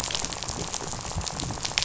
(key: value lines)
label: biophony, rattle
recorder: SoundTrap 500